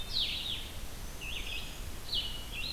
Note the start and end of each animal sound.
[0.00, 2.72] Blue-headed Vireo (Vireo solitarius)
[0.00, 2.72] Red-eyed Vireo (Vireo olivaceus)
[0.78, 1.89] Black-throated Green Warbler (Setophaga virens)

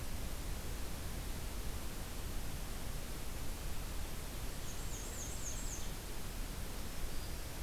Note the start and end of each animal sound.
[4.01, 5.95] Ovenbird (Seiurus aurocapilla)
[4.34, 5.79] Black-and-white Warbler (Mniotilta varia)
[6.62, 7.62] Black-throated Green Warbler (Setophaga virens)

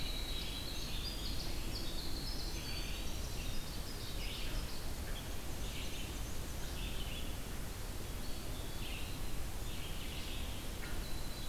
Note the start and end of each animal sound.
[0.00, 4.06] Winter Wren (Troglodytes hiemalis)
[0.00, 7.60] Red-eyed Vireo (Vireo olivaceus)
[2.33, 3.44] Eastern Wood-Pewee (Contopus virens)
[3.41, 4.86] Ovenbird (Seiurus aurocapilla)
[4.92, 6.82] Black-and-white Warbler (Mniotilta varia)
[7.99, 9.35] Eastern Wood-Pewee (Contopus virens)
[8.59, 11.48] Red-eyed Vireo (Vireo olivaceus)
[10.54, 11.48] Winter Wren (Troglodytes hiemalis)

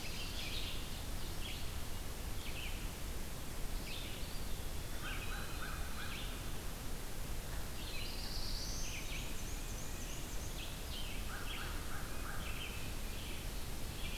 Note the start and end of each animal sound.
[0.00, 0.95] Ovenbird (Seiurus aurocapilla)
[0.00, 2.77] Red-eyed Vireo (Vireo olivaceus)
[3.69, 14.18] Red-eyed Vireo (Vireo olivaceus)
[3.96, 6.40] Eastern Wood-Pewee (Contopus virens)
[4.42, 6.35] American Crow (Corvus brachyrhynchos)
[7.33, 9.20] Black-throated Blue Warbler (Setophaga caerulescens)
[8.97, 10.50] Black-and-white Warbler (Mniotilta varia)
[10.91, 12.74] American Crow (Corvus brachyrhynchos)

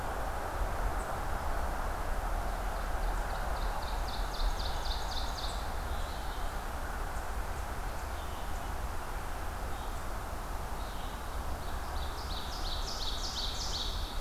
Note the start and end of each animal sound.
[0.00, 14.20] Red-eyed Vireo (Vireo olivaceus)
[2.34, 5.68] Ovenbird (Seiurus aurocapilla)
[11.18, 14.20] Ovenbird (Seiurus aurocapilla)

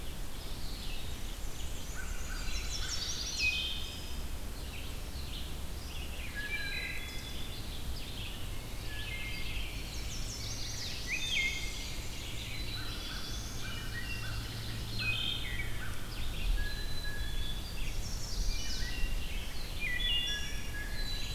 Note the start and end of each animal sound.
[0.00, 21.35] Red-eyed Vireo (Vireo olivaceus)
[1.26, 2.83] Black-and-white Warbler (Mniotilta varia)
[1.81, 3.06] American Crow (Corvus brachyrhynchos)
[2.21, 3.52] Chestnut-sided Warbler (Setophaga pensylvanica)
[2.36, 3.29] Black-capped Chickadee (Poecile atricapillus)
[3.15, 3.96] Wood Thrush (Hylocichla mustelina)
[6.05, 7.24] Wood Thrush (Hylocichla mustelina)
[6.51, 7.60] Black-capped Chickadee (Poecile atricapillus)
[8.81, 9.63] Wood Thrush (Hylocichla mustelina)
[9.65, 10.99] Chestnut-sided Warbler (Setophaga pensylvanica)
[10.81, 11.99] Pine Warbler (Setophaga pinus)
[11.00, 11.87] Wood Thrush (Hylocichla mustelina)
[12.36, 13.74] Black-throated Blue Warbler (Setophaga caerulescens)
[12.43, 13.64] Black-capped Chickadee (Poecile atricapillus)
[12.71, 15.49] American Crow (Corvus brachyrhynchos)
[13.55, 15.27] Ovenbird (Seiurus aurocapilla)
[13.72, 14.56] Wood Thrush (Hylocichla mustelina)
[14.87, 15.70] Wood Thrush (Hylocichla mustelina)
[16.52, 17.73] Blue Jay (Cyanocitta cristata)
[16.58, 17.68] Black-capped Chickadee (Poecile atricapillus)
[17.71, 18.87] Chestnut-sided Warbler (Setophaga pensylvanica)
[18.37, 19.13] Wood Thrush (Hylocichla mustelina)
[19.65, 21.02] Wood Thrush (Hylocichla mustelina)
[20.23, 21.33] Blue Jay (Cyanocitta cristata)
[20.80, 21.35] Black-capped Chickadee (Poecile atricapillus)

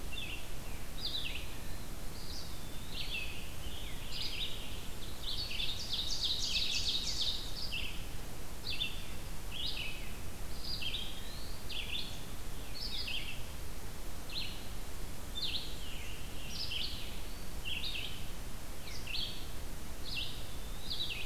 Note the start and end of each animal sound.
[0.00, 2.56] Red-eyed Vireo (Vireo olivaceus)
[2.06, 3.34] Eastern Wood-Pewee (Contopus virens)
[2.79, 4.95] Scarlet Tanager (Piranga olivacea)
[2.93, 21.25] Red-eyed Vireo (Vireo olivaceus)
[5.52, 7.71] Ovenbird (Seiurus aurocapilla)
[10.37, 11.68] Eastern Wood-Pewee (Contopus virens)
[15.36, 17.27] Scarlet Tanager (Piranga olivacea)
[19.97, 21.25] Eastern Wood-Pewee (Contopus virens)

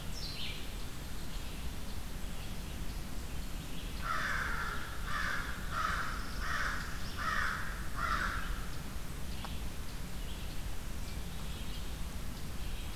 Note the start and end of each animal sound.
[0.00, 12.96] Red-eyed Vireo (Vireo olivaceus)
[3.94, 8.95] American Crow (Corvus brachyrhynchos)
[5.98, 7.17] Northern Parula (Setophaga americana)

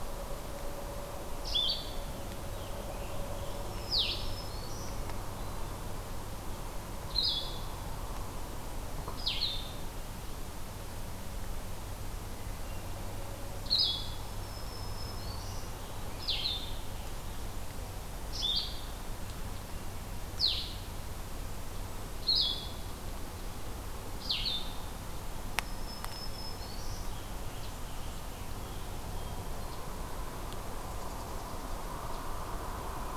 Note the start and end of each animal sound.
[0.00, 18.94] Blue-headed Vireo (Vireo solitarius)
[2.11, 4.08] American Robin (Turdus migratorius)
[3.38, 5.00] Black-throated Green Warbler (Setophaga virens)
[14.15, 15.93] Black-throated Green Warbler (Setophaga virens)
[20.29, 24.79] Blue-headed Vireo (Vireo solitarius)
[25.33, 27.23] Black-throated Green Warbler (Setophaga virens)
[27.05, 29.62] American Robin (Turdus migratorius)

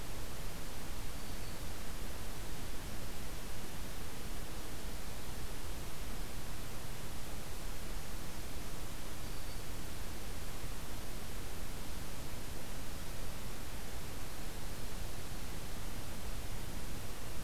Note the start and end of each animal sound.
[1.13, 1.65] Black-throated Green Warbler (Setophaga virens)
[9.20, 9.86] Black-throated Green Warbler (Setophaga virens)

